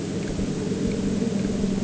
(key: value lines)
label: anthrophony, boat engine
recorder: HydroMoth